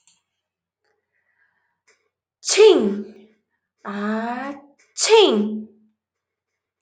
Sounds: Sneeze